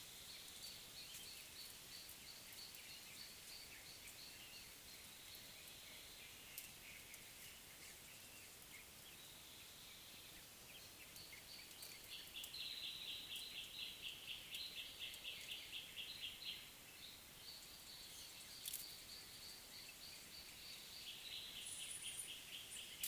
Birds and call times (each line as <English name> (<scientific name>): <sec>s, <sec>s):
Gray Apalis (Apalis cinerea): 14.1s